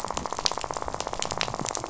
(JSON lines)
{"label": "biophony, rattle", "recorder": "SoundTrap 500"}